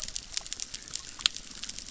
{"label": "biophony, chorus", "recorder": "SoundTrap 600"}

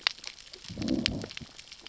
{"label": "biophony, growl", "recorder": "SoundTrap 600 or HydroMoth"}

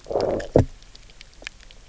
{"label": "biophony, low growl", "recorder": "SoundTrap 300"}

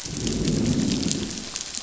{"label": "biophony, growl", "recorder": "SoundTrap 500"}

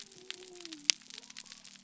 {"label": "biophony", "recorder": "SoundTrap 300"}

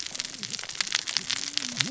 {"label": "biophony, cascading saw", "recorder": "SoundTrap 600 or HydroMoth"}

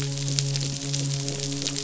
{"label": "biophony, midshipman", "recorder": "SoundTrap 500"}
{"label": "biophony", "recorder": "SoundTrap 500"}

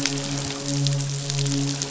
{"label": "biophony, midshipman", "recorder": "SoundTrap 500"}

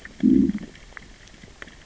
{"label": "biophony, growl", "recorder": "SoundTrap 600 or HydroMoth"}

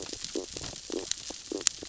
{"label": "biophony, stridulation", "recorder": "SoundTrap 600 or HydroMoth"}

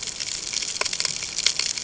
{"label": "ambient", "recorder": "HydroMoth"}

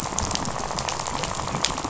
{"label": "biophony, rattle", "recorder": "SoundTrap 500"}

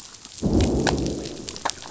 {"label": "biophony, growl", "recorder": "SoundTrap 500"}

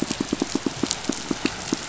{"label": "biophony, pulse", "recorder": "SoundTrap 500"}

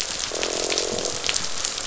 {"label": "biophony, croak", "recorder": "SoundTrap 500"}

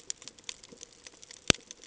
{"label": "ambient", "recorder": "HydroMoth"}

